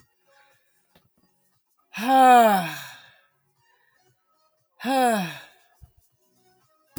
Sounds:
Sigh